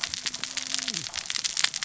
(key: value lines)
label: biophony, cascading saw
recorder: SoundTrap 600 or HydroMoth